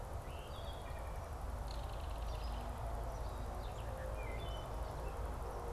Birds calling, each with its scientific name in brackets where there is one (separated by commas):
Wood Thrush (Hylocichla mustelina), Belted Kingfisher (Megaceryle alcyon)